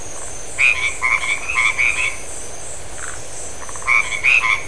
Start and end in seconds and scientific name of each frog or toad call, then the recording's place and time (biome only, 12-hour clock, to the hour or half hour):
0.4	2.5	Boana albomarginata
2.9	3.9	Phyllomedusa distincta
3.7	4.6	Boana albomarginata
Atlantic Forest, ~9pm